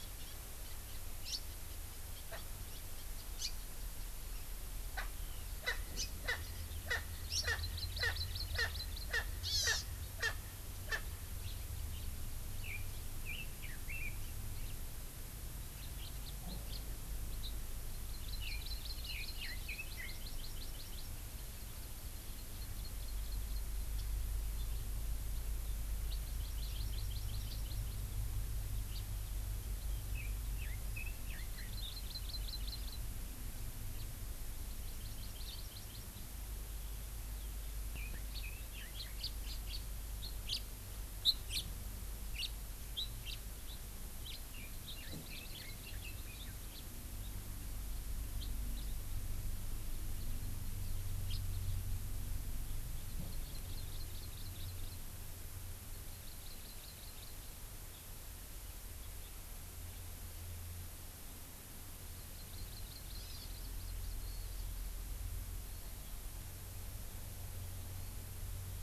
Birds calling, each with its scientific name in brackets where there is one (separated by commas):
Erckel's Francolin (Pternistis erckelii), Red-billed Leiothrix (Leiothrix lutea), Hawaii Amakihi (Chlorodrepanis virens), House Finch (Haemorhous mexicanus)